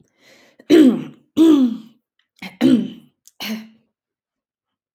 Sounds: Throat clearing